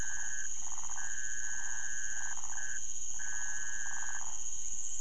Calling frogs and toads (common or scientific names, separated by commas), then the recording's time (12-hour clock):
waxy monkey tree frog, rufous frog
4:00am